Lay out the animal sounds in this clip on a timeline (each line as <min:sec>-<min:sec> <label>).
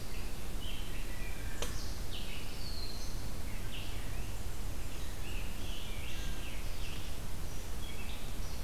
0:00.0-0:08.6 Red-eyed Vireo (Vireo olivaceus)
0:03.8-0:05.3 Blackburnian Warbler (Setophaga fusca)